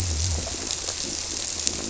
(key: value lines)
label: biophony
recorder: SoundTrap 300